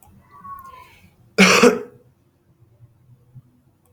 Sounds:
Cough